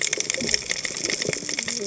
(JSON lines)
{"label": "biophony, cascading saw", "recorder": "HydroMoth"}